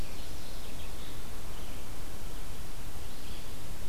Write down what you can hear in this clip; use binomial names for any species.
Geothlypis philadelphia, Vireo olivaceus